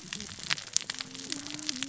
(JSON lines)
{"label": "biophony, cascading saw", "recorder": "SoundTrap 600 or HydroMoth"}